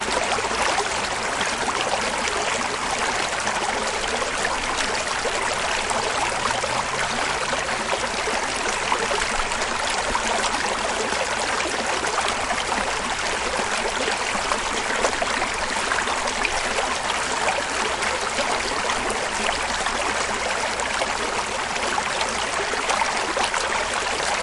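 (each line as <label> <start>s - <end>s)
A river flows calmly downstream. 0.0s - 24.4s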